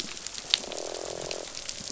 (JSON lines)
{"label": "biophony, croak", "recorder": "SoundTrap 500"}
{"label": "biophony", "recorder": "SoundTrap 500"}